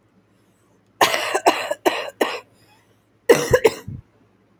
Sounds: Cough